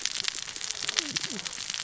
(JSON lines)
{"label": "biophony, cascading saw", "recorder": "SoundTrap 600 or HydroMoth"}